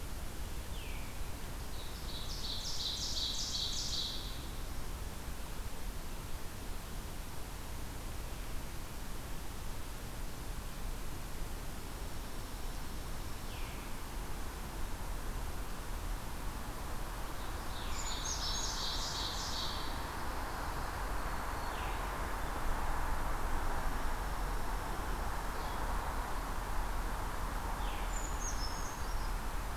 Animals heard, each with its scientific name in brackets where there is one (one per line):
Dark-eyed Junco (Junco hyemalis)
Pine Warbler (Setophaga pinus)
Ovenbird (Seiurus aurocapilla)
Brown Creeper (Certhia americana)
Veery (Catharus fuscescens)